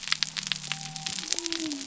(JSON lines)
{"label": "biophony", "recorder": "SoundTrap 300"}